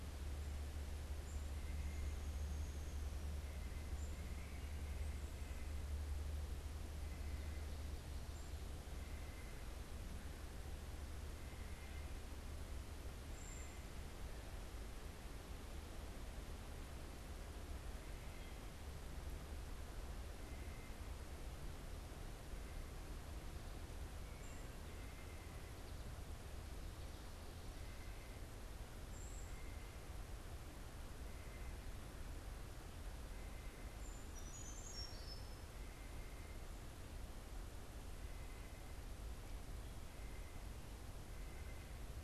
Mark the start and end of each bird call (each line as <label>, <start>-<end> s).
White-breasted Nuthatch (Sitta carolinensis), 0.0-7.8 s
Black-capped Chickadee (Poecile atricapillus), 0.0-8.6 s
Downy Woodpecker (Dryobates pubescens), 1.5-3.3 s
White-breasted Nuthatch (Sitta carolinensis), 8.7-42.2 s
Brown Creeper (Certhia americana), 13.2-13.9 s
Wood Thrush (Hylocichla mustelina), 18.0-18.6 s
Brown Creeper (Certhia americana), 24.2-24.6 s
Brown Creeper (Certhia americana), 28.9-29.6 s
Brown Creeper (Certhia americana), 33.8-36.0 s